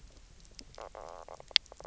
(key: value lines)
label: biophony, knock croak
recorder: SoundTrap 300